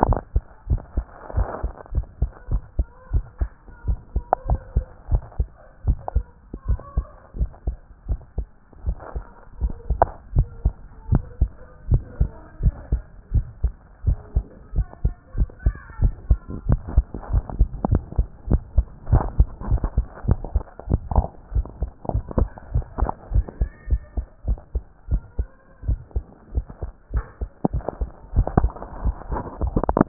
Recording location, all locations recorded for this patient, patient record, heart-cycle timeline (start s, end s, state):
tricuspid valve (TV)
pulmonary valve (PV)+tricuspid valve (TV)+mitral valve (MV)
#Age: Child
#Sex: Male
#Height: 117.0 cm
#Weight: 19.7 kg
#Pregnancy status: False
#Murmur: Absent
#Murmur locations: nan
#Most audible location: nan
#Systolic murmur timing: nan
#Systolic murmur shape: nan
#Systolic murmur grading: nan
#Systolic murmur pitch: nan
#Systolic murmur quality: nan
#Diastolic murmur timing: nan
#Diastolic murmur shape: nan
#Diastolic murmur grading: nan
#Diastolic murmur pitch: nan
#Diastolic murmur quality: nan
#Outcome: Abnormal
#Campaign: 2015 screening campaign
0.00	1.89	unannotated
1.89	2.06	S1
2.06	2.18	systole
2.18	2.30	S2
2.30	2.50	diastole
2.50	2.62	S1
2.62	2.76	systole
2.76	2.88	S2
2.88	3.12	diastole
3.12	3.26	S1
3.26	3.40	systole
3.40	3.52	S2
3.52	3.82	diastole
3.82	3.98	S1
3.98	4.12	systole
4.12	4.24	S2
4.24	4.46	diastole
4.46	4.60	S1
4.60	4.74	systole
4.74	4.84	S2
4.84	5.08	diastole
5.08	5.22	S1
5.22	5.38	systole
5.38	5.52	S2
5.52	5.82	diastole
5.82	5.96	S1
5.96	6.14	systole
6.14	6.30	S2
6.30	6.60	diastole
6.60	6.78	S1
6.78	6.96	systole
6.96	7.08	S2
7.08	7.36	diastole
7.36	7.50	S1
7.50	7.66	systole
7.66	7.78	S2
7.78	8.08	diastole
8.08	8.18	S1
8.18	8.38	systole
8.38	8.52	S2
8.52	8.82	diastole
8.82	8.96	S1
8.96	9.16	systole
9.16	9.30	S2
9.30	9.60	diastole
9.60	9.73	S1
9.73	9.87	systole
9.87	10.00	S2
10.00	10.34	diastole
10.34	10.48	S1
10.48	10.62	systole
10.62	10.76	S2
10.76	11.06	diastole
11.06	11.22	S1
11.22	11.40	systole
11.40	11.56	S2
11.56	11.86	diastole
11.86	12.04	S1
12.04	12.18	systole
12.18	12.32	S2
12.32	12.60	diastole
12.60	12.74	S1
12.74	12.90	systole
12.90	13.04	S2
13.04	13.32	diastole
13.32	13.48	S1
13.48	13.62	systole
13.62	13.76	S2
13.76	14.04	diastole
14.04	14.18	S1
14.18	14.34	systole
14.34	14.48	S2
14.48	14.74	diastole
14.74	14.88	S1
14.88	15.02	systole
15.02	15.14	S2
15.14	15.36	diastole
15.36	15.50	S1
15.50	15.64	systole
15.64	15.78	S2
15.78	16.00	diastole
16.00	16.16	S1
16.16	16.30	systole
16.30	16.42	S2
16.42	16.66	diastole
16.66	16.80	S1
16.80	16.96	systole
16.96	17.08	S2
17.08	17.30	diastole
17.30	17.44	S1
17.44	17.54	systole
17.54	17.70	S2
17.70	17.90	diastole
17.90	18.04	S1
18.04	18.16	systole
18.16	18.26	S2
18.26	18.48	diastole
18.48	18.62	S1
18.62	18.74	systole
18.74	18.88	S2
18.88	19.10	diastole
19.10	19.24	S1
19.24	19.34	systole
19.34	19.46	S2
19.46	19.66	diastole
19.66	19.82	S1
19.82	19.96	systole
19.96	20.06	S2
20.06	20.26	diastole
20.26	20.40	S1
20.40	20.54	systole
20.54	20.66	S2
20.66	20.88	diastole
20.88	21.02	S1
21.02	21.16	systole
21.16	21.30	S2
21.30	21.54	diastole
21.54	21.66	S1
21.66	21.80	systole
21.80	21.92	S2
21.92	22.14	diastole
22.14	22.24	S1
22.24	22.38	systole
22.38	22.50	S2
22.50	22.72	diastole
22.72	22.86	S1
22.86	22.98	systole
22.98	23.10	S2
23.10	23.32	diastole
23.32	23.46	S1
23.46	23.60	systole
23.60	23.70	S2
23.70	23.90	diastole
23.90	24.02	S1
24.02	24.16	systole
24.16	24.26	S2
24.26	24.46	diastole
24.46	24.58	S1
24.58	24.74	systole
24.74	24.84	S2
24.84	25.10	diastole
25.10	25.22	S1
25.22	25.38	systole
25.38	25.54	S2
25.54	25.84	diastole
25.84	26.00	S1
26.00	26.14	systole
26.14	26.24	S2
26.24	26.54	diastole
26.54	26.66	S1
26.66	26.82	systole
26.82	26.92	S2
26.92	27.14	diastole
27.14	27.24	S1
27.24	27.40	systole
27.40	27.50	S2
27.50	27.72	diastole
27.72	27.84	S1
27.84	28.00	systole
28.00	28.10	S2
28.10	28.32	diastole
28.32	28.46	S1
28.46	28.58	systole
28.58	28.72	S2
28.72	29.00	diastole
29.00	29.16	S1
29.16	29.30	systole
29.30	29.40	S2
29.40	29.60	diastole
29.60	29.74	S1
29.74	30.08	unannotated